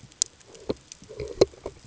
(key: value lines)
label: ambient
recorder: HydroMoth